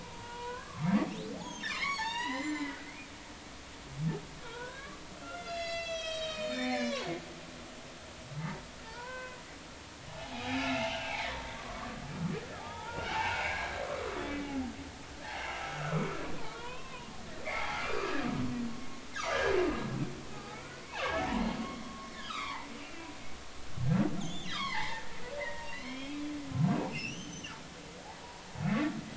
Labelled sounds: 0.0	2.8	humpback whale, 0.80 to 7.3 kHz
4.4	7.1	humpback whale, 0.90 to 7.9 kHz
8.4	9.4	humpback whale, 0.83 to 2.6 kHz
10.1	12.0	humpback whale, 0.80 to 3.0 kHz
12.5	14.4	humpback whale, 0.80 to 3.6 kHz
15.8	17.1	humpback whale, 0.90 to 3.6 kHz
17.4	18.3	humpback whale, 0.80 to 2.5 kHz
20.3	20.8	humpback whale, 0.80 to 1.5 kHz
21.1	23.1	humpback whale, 0.80 to 3.9 kHz
24.2	25.1	humpback whale, 0.80 to 5.5 kHz
25.4	26.3	humpback whale, 0.86 to 5.5 kHz
26.9	27.5	humpback whale, 2.5 to 6.4 kHz

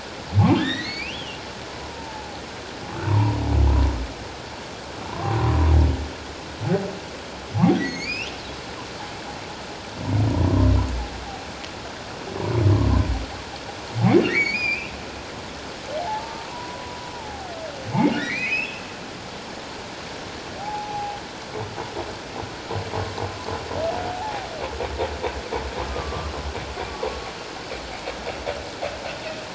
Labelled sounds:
0.6	2.4	humpback whale, 0.78 to 5.1 kHz
3.1	3.4	humpback whale, 0.81 to 1.1 kHz
5.1	5.3	humpback whale, 0.84 to 1.2 kHz
7.8	8.3	humpback whale, 2.1 to 7.0 kHz
14.3	14.9	humpback whale, 1.8 to 7.0 kHz
16.0	17.5	humpback whale, 0.78 to 1.3 kHz
18.2	18.8	humpback whale, 1.6 to 3.1 kHz
20.6	21.2	humpback whale, 0.78 to 0.91 kHz
24.1	24.5	humpback whale, 0.78 to 0.94 kHz
25.9	26.3	humpback whale, 1.0 to 1.3 kHz

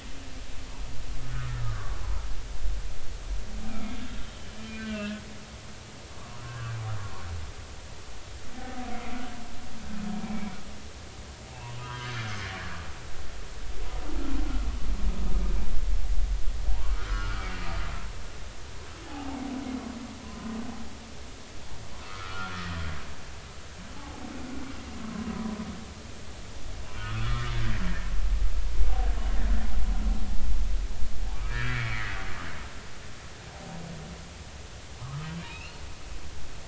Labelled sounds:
1.3	2.0	humpback whale, 0.99 to 1.5 kHz
4.6	5.2	humpback whale, 1.4 to 2.9 kHz
6.4	6.8	humpback whale, 1.0 to 1.7 kHz
10.2	10.5	humpback whale, 2.2 to 2.4 kHz
11.8	13.1	humpback whale, 0.93 to 1.6 kHz
16.7	17.5	humpback whale, 0.80 to 5.1 kHz
19.0	19.4	humpback whale, 0.80 to 0.96 kHz
22.1	22.7	humpback whale, 1.0 to 1.5 kHz
24.0	24.2	humpback whale, 0.80 to 0.93 kHz
27.0	27.5	humpback whale, 1.0 to 3.5 kHz
27.8	28.1	humpback whale, 2.7 to 3.0 kHz
31.5	32.2	humpback whale, 1.3 to 2.4 kHz
35.0	35.8	humpback whale, 0.99 to 3.0 kHz

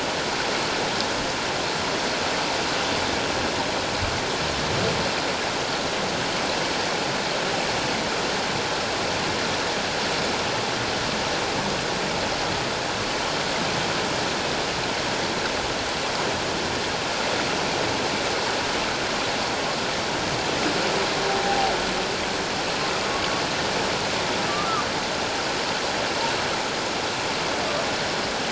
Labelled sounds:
21.3	21.7	humpback whale, 0.78 to 0.84 kHz

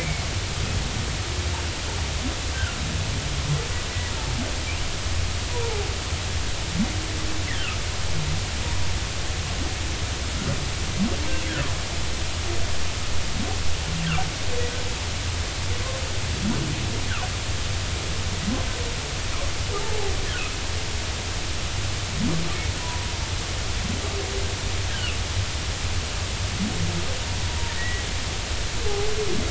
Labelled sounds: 0.0	0.2	humpback whale, 2.1 to 2.4 kHz
2.5	2.8	humpback whale, 1.3 to 1.7 kHz
5.5	5.9	humpback whale, 0.80 to 1.0 kHz
7.5	7.8	humpback whale, 2.5 to 3.6 kHz
19.7	20.1	humpback whale, 0.80 to 0.93 kHz
22.8	23.1	humpback whale, 0.93 to 1.0 kHz
27.8	28.0	humpback whale, 1.8 to 2.0 kHz

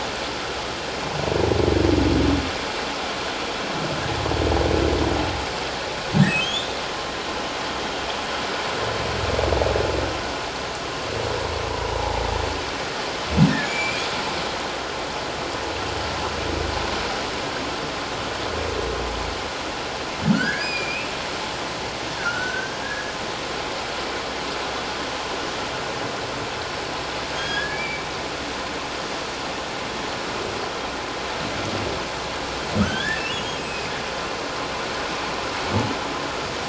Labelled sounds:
6.4	6.7	humpback whale, 3.0 to 3.7 kHz
13.6	14.1	humpback whale, 2.2 to 7.1 kHz
20.3	21.1	humpback whale, 1.3 to 5.1 kHz
22.2	23.1	humpback whale, 1.3 to 1.8 kHz
27.3	28.0	humpback whale, 1.6 to 4.7 kHz
32.8	33.9	humpback whale, 1.2 to 3.6 kHz

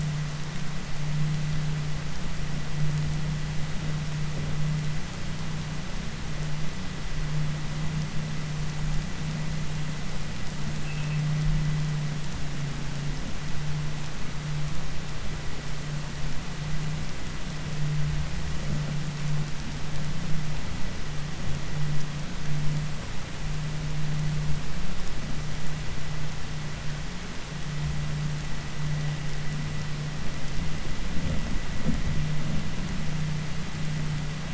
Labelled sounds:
10.8	11.2	vessel noise, 2.5 to 3.5 kHz

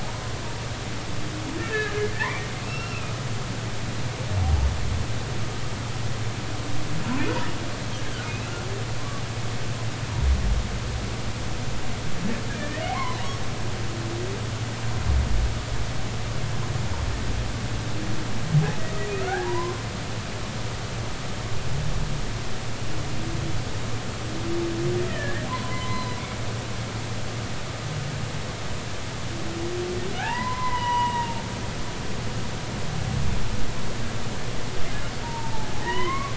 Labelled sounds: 1.6	3.1	humpback whale, 1.2 to 2.8 kHz
4.4	4.7	humpback whale, 0.80 to 0.96 kHz
12.5	13.3	humpback whale, 0.93 to 2.3 kHz
19.2	19.7	humpback whale, 0.80 to 1.7 kHz
25.0	26.2	humpback whale, 0.93 to 4.1 kHz
30.2	31.4	humpback whale, 0.80 to 2.1 kHz
31.7	32.2	humpback whale, 2.8 to 3.0 kHz
35.2	36.3	humpback whale, 0.80 to 3.1 kHz

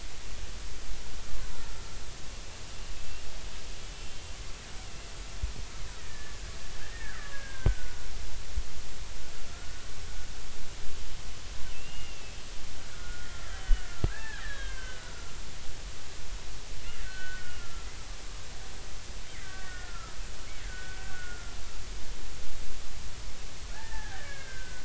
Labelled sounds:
2.9	3.2	killer whale, Bigg's (transient), 2.6 to 2.9 kHz
3.8	4.2	killer whale, Bigg's (transient), 2.7 to 3.2 kHz
6.0	8.1	killer whale, Bigg's (transient), 1.1 to 2.0 kHz
9.5	9.7	killer whale, Bigg's (transient), 1.3 to 1.5 kHz
11.7	12.4	killer whale, Bigg's (transient), 2.6 to 2.9 kHz
12.9	15.1	killer whale, Bigg's (transient), 0.80 to 4.1 kHz
17.0	17.9	killer whale, Bigg's (transient), 1.3 to 1.6 kHz
19.3	20.2	killer whale, Bigg's (transient), 1.1 to 2.4 kHz
20.7	21.5	killer whale, Bigg's (transient), 1.3 to 1.7 kHz
23.7	24.8	killer whale, Bigg's (transient), 0.80 to 2.3 kHz

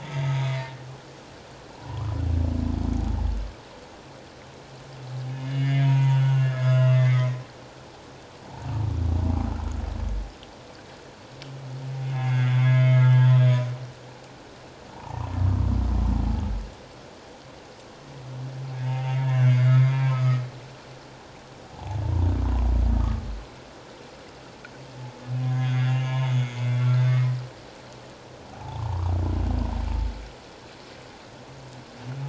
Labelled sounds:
0.0	0.8	humpback whale, 1.8 to 2.1 kHz
1.8	2.2	humpback whale, 0.84 to 1.3 kHz
5.3	7.4	humpback whale, 0.88 to 6.8 kHz
8.4	8.7	humpback whale, 0.78 to 0.97 kHz
12.1	13.7	humpback whale, 1.2 to 3.7 kHz
14.9	15.4	humpback whale, 0.78 to 1.2 kHz
18.9	20.4	humpback whale, 0.78 to 3.8 kHz
22.0	22.3	humpback whale, 0.84 to 1.0 kHz
25.6	26.5	humpback whale, 1.6 to 5.0 kHz
26.9	27.4	humpback whale, 1.5 to 2.2 kHz
28.5	29.1	humpback whale, 0.78 to 1.3 kHz

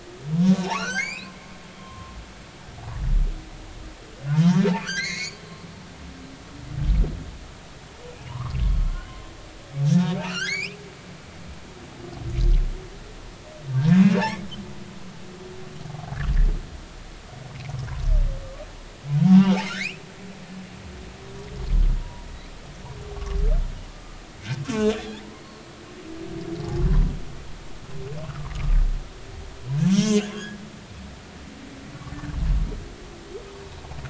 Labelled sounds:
0.6	1.4	humpback whale, 0.80 to 7.5 kHz
1.8	2.3	humpback whale, 0.99 to 2.8 kHz
4.4	5.4	humpback whale, 1.3 to 4.9 kHz
8.3	9.1	humpback whale, 0.90 to 1.6 kHz
9.9	10.8	humpback whale, 1.2 to 7.5 kHz
15.9	16.2	humpback whale, 0.80 to 0.90 kHz
19.2	20.0	humpback whale, 0.80 to 2.9 kHz
22.3	22.5	humpback whale, 1.9 to 2.4 kHz
23.9	25.2	humpback whale, 1.2 to 3.8 kHz
29.8	31.2	humpback whale, 1.4 to 6.4 kHz

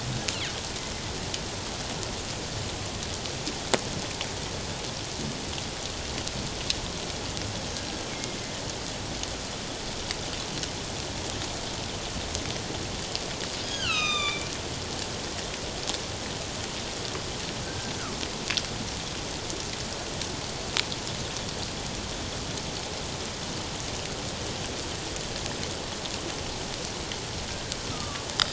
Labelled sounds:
8.1	8.4	killer whale, northern resident, G clan, 2.1 to 2.4 kHz
13.6	14.5	killer whale, northern resident, G clan, 1.1 to 7.3 kHz
17.6	17.9	killer whale, northern resident, G clan, 1.5 to 1.6 kHz
27.9	28.3	killer whale, northern resident, G clan, 1.1 to 1.4 kHz

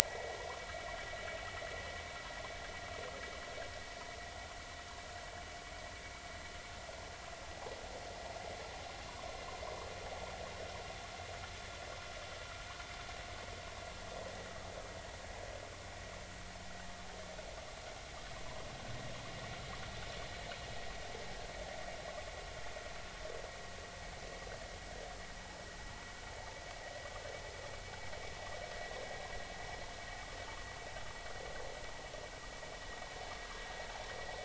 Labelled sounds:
0.0	0.5	vessel noise, 1.9 to 2.1 kHz

